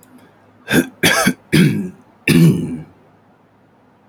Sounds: Throat clearing